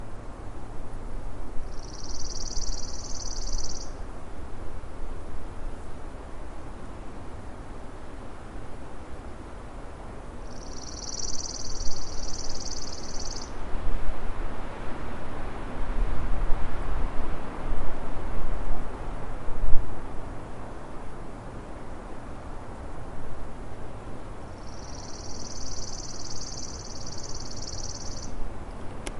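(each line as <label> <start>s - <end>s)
A deep steady noise passes by. 0.0s - 29.2s
A bird chirps rhythmically in the distance. 1.7s - 4.0s
A bird chirps rhythmically in the distance. 10.5s - 13.6s
A bird chirps rhythmically in the distance. 24.7s - 28.4s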